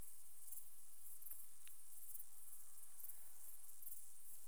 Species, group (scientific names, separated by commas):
Pholidoptera griseoaptera, Orthoptera